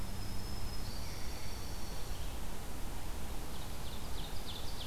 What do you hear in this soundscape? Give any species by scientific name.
Setophaga virens, Vireo olivaceus, Junco hyemalis, Seiurus aurocapilla